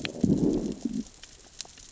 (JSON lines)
{"label": "biophony, growl", "recorder": "SoundTrap 600 or HydroMoth"}